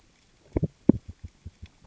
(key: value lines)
label: biophony, knock
recorder: SoundTrap 600 or HydroMoth